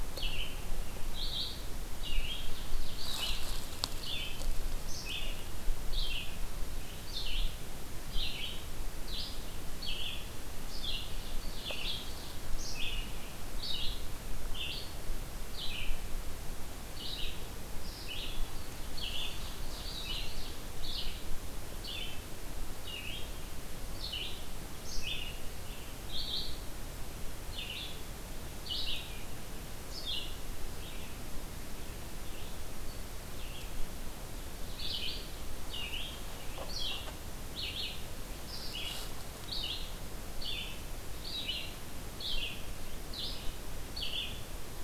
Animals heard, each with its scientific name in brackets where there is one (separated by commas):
Red-eyed Vireo (Vireo olivaceus), Ovenbird (Seiurus aurocapilla)